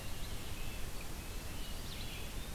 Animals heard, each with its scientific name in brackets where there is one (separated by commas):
Red-eyed Vireo (Vireo olivaceus), Red-breasted Nuthatch (Sitta canadensis), Eastern Wood-Pewee (Contopus virens)